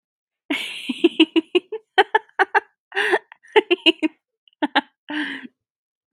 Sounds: Laughter